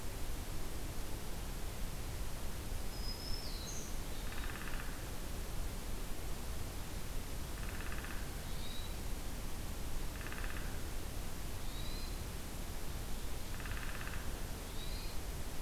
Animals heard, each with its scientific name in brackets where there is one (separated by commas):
Downy Woodpecker (Dryobates pubescens), Black-throated Green Warbler (Setophaga virens), Hermit Thrush (Catharus guttatus)